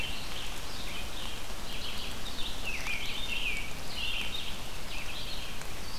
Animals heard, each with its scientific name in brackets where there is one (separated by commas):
Red-eyed Vireo (Vireo olivaceus), American Robin (Turdus migratorius)